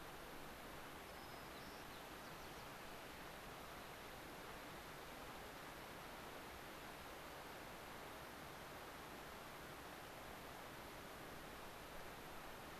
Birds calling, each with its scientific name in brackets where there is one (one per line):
White-crowned Sparrow (Zonotrichia leucophrys)